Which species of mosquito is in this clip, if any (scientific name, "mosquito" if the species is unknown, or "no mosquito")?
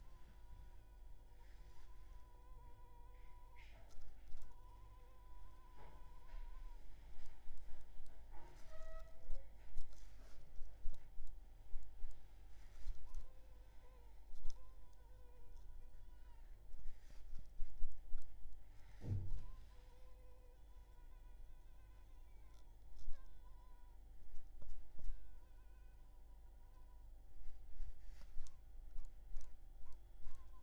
Culex pipiens complex